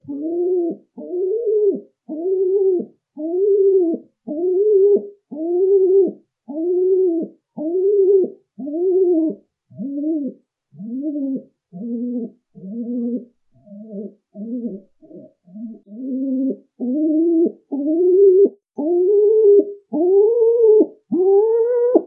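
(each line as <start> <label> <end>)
0.0 Howling sound most likely made by a bird. 22.1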